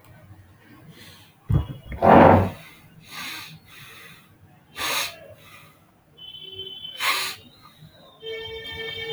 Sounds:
Sigh